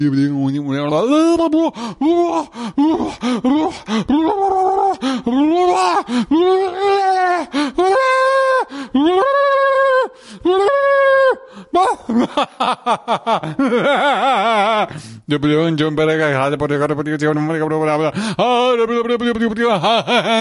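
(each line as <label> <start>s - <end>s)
A person is talking. 0.0s - 20.4s
A person laughing. 11.7s - 14.9s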